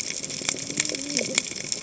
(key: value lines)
label: biophony, cascading saw
recorder: HydroMoth